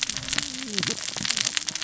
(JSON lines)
{"label": "biophony, cascading saw", "recorder": "SoundTrap 600 or HydroMoth"}